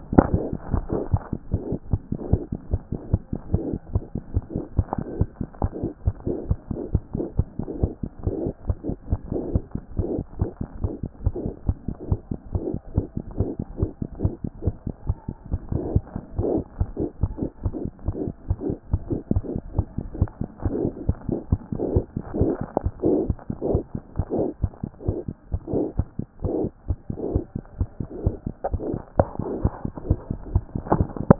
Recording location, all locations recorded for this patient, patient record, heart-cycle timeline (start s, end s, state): mitral valve (MV)
aortic valve (AV)+mitral valve (MV)
#Age: Infant
#Sex: Male
#Height: 54.0 cm
#Weight: 7.7 kg
#Pregnancy status: False
#Murmur: Unknown
#Murmur locations: nan
#Most audible location: nan
#Systolic murmur timing: nan
#Systolic murmur shape: nan
#Systolic murmur grading: nan
#Systolic murmur pitch: nan
#Systolic murmur quality: nan
#Diastolic murmur timing: nan
#Diastolic murmur shape: nan
#Diastolic murmur grading: nan
#Diastolic murmur pitch: nan
#Diastolic murmur quality: nan
#Outcome: Abnormal
#Campaign: 2014 screening campaign
0.00	0.58	unannotated
0.58	0.72	diastole
0.72	0.84	S1
0.84	0.96	systole
0.96	1.02	S2
1.02	1.12	diastole
1.12	1.20	S1
1.20	1.32	systole
1.32	1.38	S2
1.38	1.54	diastole
1.54	1.62	S1
1.62	1.72	systole
1.72	1.80	S2
1.80	1.92	diastole
1.92	2.00	S1
2.00	2.10	systole
2.10	2.18	S2
2.18	2.30	diastole
2.30	2.42	S1
2.42	2.52	systole
2.52	2.58	S2
2.58	2.72	diastole
2.72	2.82	S1
2.82	2.94	systole
2.94	3.00	S2
3.00	3.16	diastole
3.16	3.22	S1
3.22	3.32	systole
3.32	3.38	S2
3.38	3.54	diastole
3.54	3.64	S1
3.64	3.70	systole
3.70	3.78	S2
3.78	3.94	diastole
3.94	4.04	S1
4.04	4.14	systole
4.14	4.22	S2
4.22	4.34	diastole
4.34	4.44	S1
4.44	4.54	systole
4.54	4.64	S2
4.64	4.78	diastole
4.78	4.86	S1
4.86	4.98	systole
4.98	5.04	S2
5.04	5.18	diastole
5.18	5.28	S1
5.28	5.40	systole
5.40	5.48	S2
5.48	5.62	diastole
5.62	5.72	S1
5.72	5.82	systole
5.82	5.92	S2
5.92	6.06	diastole
6.06	6.16	S1
6.16	6.26	systole
6.26	6.38	S2
6.38	6.48	diastole
6.48	6.58	S1
6.58	6.70	systole
6.70	6.80	S2
6.80	6.94	diastole
6.94	7.02	S1
7.02	7.14	systole
7.14	7.26	S2
7.26	7.38	diastole
7.38	7.46	S1
7.46	7.58	systole
7.58	7.66	S2
7.66	7.80	diastole
7.80	7.92	S1
7.92	8.02	systole
8.02	8.10	S2
8.10	8.26	diastole
8.26	8.36	S1
8.36	8.44	systole
8.44	8.54	S2
8.54	8.68	diastole
8.68	8.76	S1
8.76	8.86	systole
8.86	8.96	S2
8.96	9.10	diastole
9.10	9.20	S1
9.20	9.32	systole
9.32	9.44	S2
9.44	9.58	diastole
9.58	9.62	S1
9.62	9.74	systole
9.74	9.80	S2
9.80	9.98	diastole
9.98	10.10	S1
10.10	10.16	systole
10.16	10.24	S2
10.24	10.40	diastole
10.40	10.50	S1
10.50	10.60	systole
10.60	10.68	S2
10.68	10.82	diastole
10.82	10.92	S1
10.92	11.02	systole
11.02	11.10	S2
11.10	11.26	diastole
11.26	11.34	S1
11.34	11.44	systole
11.44	11.52	S2
11.52	11.68	diastole
11.68	11.76	S1
11.76	11.88	systole
11.88	11.96	S2
11.96	12.10	diastole
12.10	12.20	S1
12.20	12.30	systole
12.30	12.38	S2
12.38	12.58	diastole
12.58	12.64	S1
12.64	12.72	systole
12.72	12.80	S2
12.80	12.96	diastole
12.96	13.06	S1
13.06	13.16	systole
13.16	13.22	S2
13.22	13.38	diastole
13.38	13.50	S1
13.50	13.58	systole
13.58	13.66	S2
13.66	13.80	diastole
13.80	13.90	S1
13.90	14.00	systole
14.00	14.08	S2
14.08	14.22	diastole
14.22	14.34	S1
14.34	14.44	systole
14.44	14.50	S2
14.50	14.64	diastole
14.64	14.74	S1
14.74	14.86	systole
14.86	14.94	S2
14.94	15.08	diastole
15.08	15.16	S1
15.16	15.28	systole
15.28	15.34	S2
15.34	15.50	diastole
15.50	31.39	unannotated